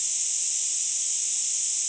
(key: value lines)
label: ambient
recorder: HydroMoth